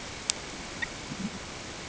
{"label": "ambient", "recorder": "HydroMoth"}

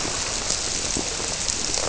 {"label": "biophony", "recorder": "SoundTrap 300"}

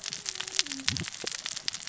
{"label": "biophony, cascading saw", "recorder": "SoundTrap 600 or HydroMoth"}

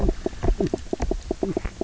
{"label": "biophony, knock croak", "recorder": "SoundTrap 300"}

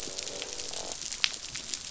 {"label": "biophony, croak", "recorder": "SoundTrap 500"}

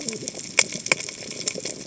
{"label": "biophony, cascading saw", "recorder": "HydroMoth"}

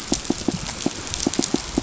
{"label": "biophony, pulse", "recorder": "SoundTrap 500"}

